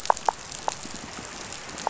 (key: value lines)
label: biophony, pulse
recorder: SoundTrap 500